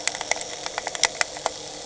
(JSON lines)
{"label": "anthrophony, boat engine", "recorder": "HydroMoth"}